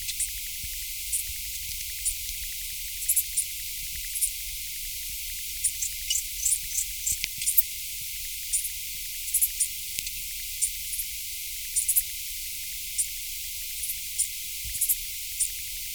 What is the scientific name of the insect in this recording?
Eupholidoptera schmidti